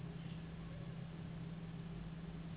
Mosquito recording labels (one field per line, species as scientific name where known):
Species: Anopheles gambiae s.s.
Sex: female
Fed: unfed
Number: one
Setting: insect culture